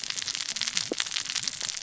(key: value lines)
label: biophony, cascading saw
recorder: SoundTrap 600 or HydroMoth